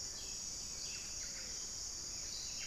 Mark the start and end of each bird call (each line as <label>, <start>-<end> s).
Gilded Barbet (Capito auratus), 0.0-2.7 s
Gray-fronted Dove (Leptotila rufaxilla), 0.0-2.7 s
Plumbeous Pigeon (Patagioenas plumbea), 0.0-2.7 s